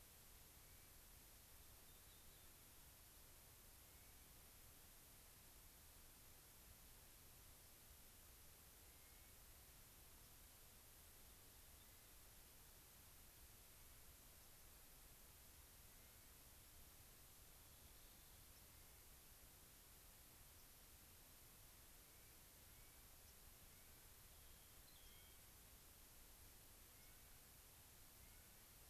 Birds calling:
White-crowned Sparrow (Zonotrichia leucophrys)
unidentified bird
Rock Wren (Salpinctes obsoletus)
Clark's Nutcracker (Nucifraga columbiana)

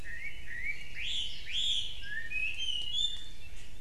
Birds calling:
Chinese Hwamei (Garrulax canorus)

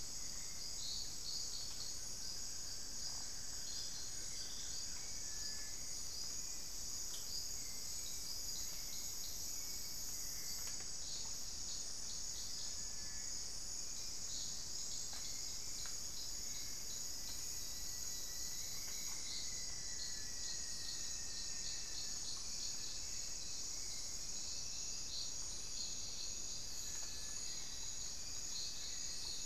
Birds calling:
Hauxwell's Thrush (Turdus hauxwelli)
Buff-throated Woodcreeper (Xiphorhynchus guttatus)
Cinereous Tinamou (Crypturellus cinereus)
Rufous-fronted Antthrush (Formicarius rufifrons)

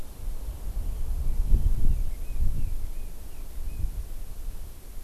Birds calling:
Red-billed Leiothrix (Leiothrix lutea)

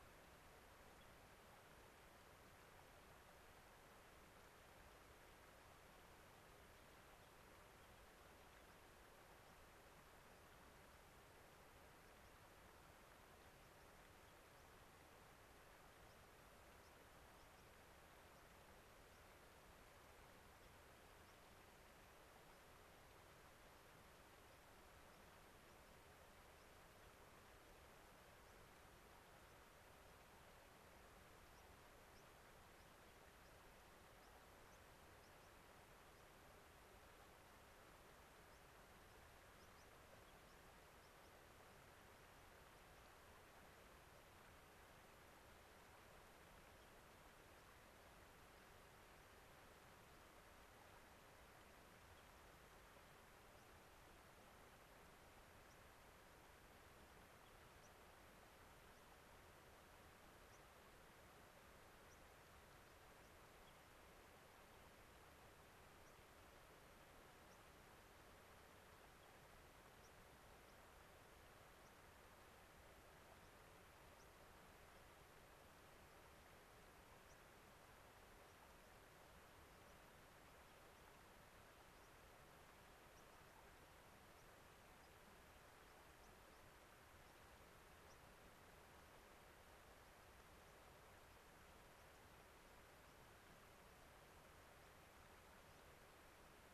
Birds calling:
White-crowned Sparrow (Zonotrichia leucophrys)
unidentified bird

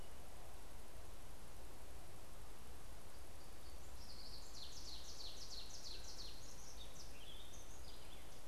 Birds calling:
Ovenbird (Seiurus aurocapilla)

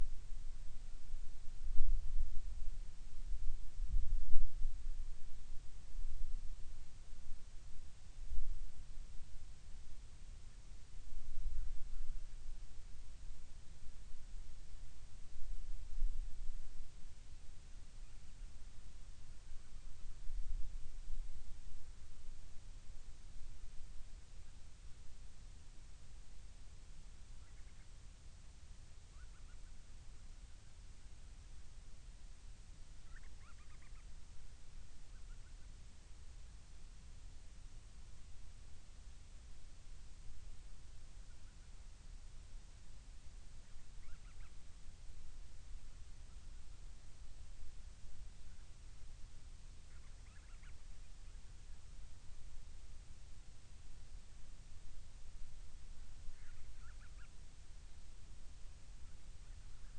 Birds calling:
Band-rumped Storm-Petrel (Hydrobates castro)

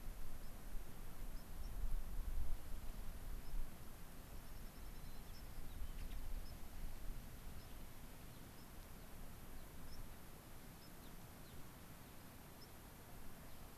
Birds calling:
Dark-eyed Junco (Junco hyemalis)
White-crowned Sparrow (Zonotrichia leucophrys)
Gray-crowned Rosy-Finch (Leucosticte tephrocotis)

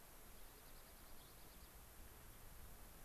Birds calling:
Gray-crowned Rosy-Finch (Leucosticte tephrocotis)
unidentified bird

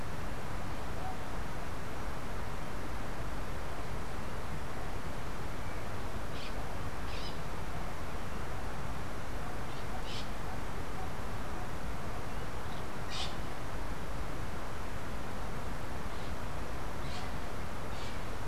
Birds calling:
Bronze-winged Parrot (Pionus chalcopterus)

